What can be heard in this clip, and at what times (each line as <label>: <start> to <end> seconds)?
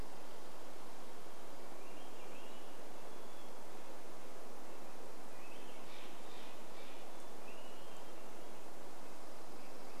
Dark-eyed Junco song: 0 to 2 seconds
Swainson's Thrush song: 0 to 10 seconds
Chestnut-backed Chickadee call: 2 to 4 seconds
Red-breasted Nuthatch song: 2 to 8 seconds
Hermit Thrush song: 6 to 8 seconds
Steller's Jay call: 6 to 8 seconds
Swainson's Thrush call: 6 to 8 seconds
Dark-eyed Junco song: 8 to 10 seconds